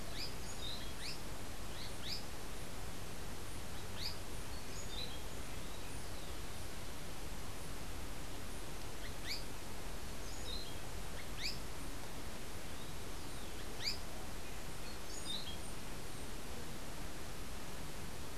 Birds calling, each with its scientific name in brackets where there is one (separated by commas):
Azara's Spinetail (Synallaxis azarae), Orange-billed Nightingale-Thrush (Catharus aurantiirostris)